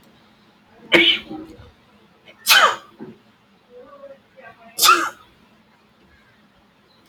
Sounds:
Sneeze